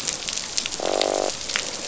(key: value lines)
label: biophony, croak
recorder: SoundTrap 500